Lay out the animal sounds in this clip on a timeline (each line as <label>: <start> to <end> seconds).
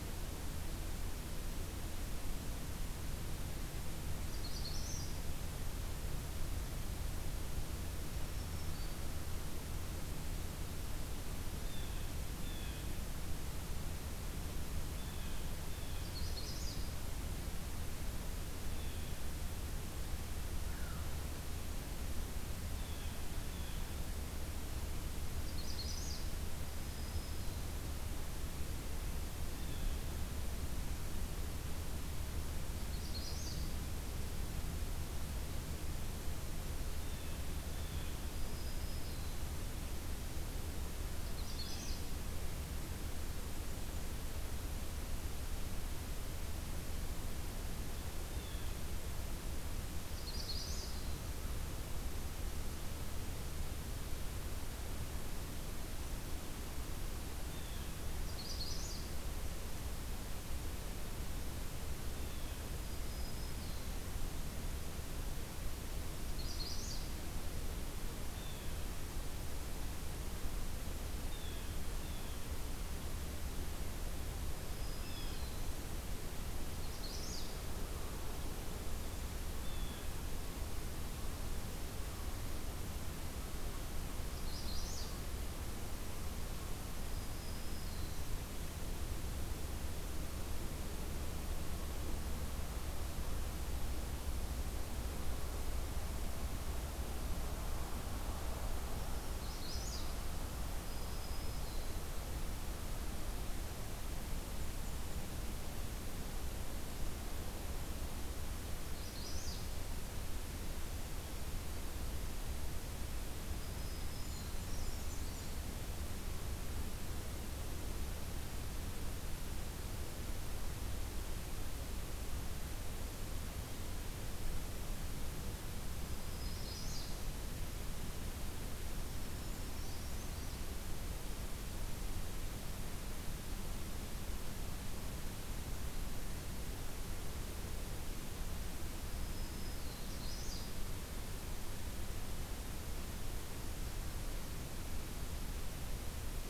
Magnolia Warbler (Setophaga magnolia): 4.2 to 5.2 seconds
Black-throated Green Warbler (Setophaga virens): 8.0 to 9.1 seconds
Blue Jay (Cyanocitta cristata): 11.6 to 13.0 seconds
Blue Jay (Cyanocitta cristata): 14.9 to 16.1 seconds
Magnolia Warbler (Setophaga magnolia): 16.0 to 16.9 seconds
Blue Jay (Cyanocitta cristata): 18.7 to 19.1 seconds
American Herring Gull (Larus smithsonianus): 20.6 to 21.1 seconds
Blue Jay (Cyanocitta cristata): 22.7 to 23.9 seconds
Magnolia Warbler (Setophaga magnolia): 25.5 to 26.3 seconds
Black-throated Green Warbler (Setophaga virens): 26.7 to 27.7 seconds
Black-throated Green Warbler (Setophaga virens): 29.5 to 30.0 seconds
Magnolia Warbler (Setophaga magnolia): 32.6 to 33.7 seconds
Blue Jay (Cyanocitta cristata): 36.9 to 38.2 seconds
Black-throated Green Warbler (Setophaga virens): 38.2 to 39.4 seconds
Magnolia Warbler (Setophaga magnolia): 41.3 to 42.1 seconds
Blue Jay (Cyanocitta cristata): 48.2 to 48.7 seconds
Magnolia Warbler (Setophaga magnolia): 50.1 to 51.1 seconds
Black-throated Green Warbler (Setophaga virens): 50.2 to 51.3 seconds
Blue Jay (Cyanocitta cristata): 57.5 to 57.9 seconds
Magnolia Warbler (Setophaga magnolia): 58.2 to 59.1 seconds
Blue Jay (Cyanocitta cristata): 62.0 to 62.6 seconds
Black-throated Green Warbler (Setophaga virens): 62.9 to 64.1 seconds
Magnolia Warbler (Setophaga magnolia): 66.3 to 67.1 seconds
Blue Jay (Cyanocitta cristata): 68.3 to 68.7 seconds
Blue Jay (Cyanocitta cristata): 71.3 to 72.5 seconds
Black-throated Green Warbler (Setophaga virens): 74.5 to 75.8 seconds
Blue Jay (Cyanocitta cristata): 75.0 to 75.5 seconds
Magnolia Warbler (Setophaga magnolia): 76.9 to 77.6 seconds
Blue Jay (Cyanocitta cristata): 79.6 to 80.1 seconds
Magnolia Warbler (Setophaga magnolia): 84.3 to 85.2 seconds
Black-throated Green Warbler (Setophaga virens): 87.1 to 88.3 seconds
Magnolia Warbler (Setophaga magnolia): 99.3 to 100.2 seconds
Black-throated Green Warbler (Setophaga virens): 100.9 to 102.1 seconds
Magnolia Warbler (Setophaga magnolia): 109.0 to 109.8 seconds
Black-throated Green Warbler (Setophaga virens): 113.5 to 114.6 seconds
Brown Creeper (Certhia americana): 114.2 to 115.6 seconds
Black-and-white Warbler (Mniotilta varia): 114.6 to 115.6 seconds
Black-throated Green Warbler (Setophaga virens): 125.9 to 127.2 seconds
Magnolia Warbler (Setophaga magnolia): 126.3 to 127.2 seconds
Black-throated Green Warbler (Setophaga virens): 128.7 to 130.3 seconds
Brown Creeper (Certhia americana): 129.2 to 130.6 seconds
Black-throated Green Warbler (Setophaga virens): 139.3 to 140.2 seconds
Magnolia Warbler (Setophaga magnolia): 140.2 to 140.8 seconds